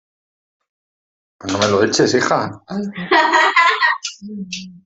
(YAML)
expert_labels:
- quality: no cough present
  cough_type: unknown
  dyspnea: false
  wheezing: false
  stridor: false
  choking: false
  congestion: false
  nothing: true
  diagnosis: healthy cough
  severity: pseudocough/healthy cough